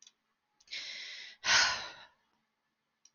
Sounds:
Sigh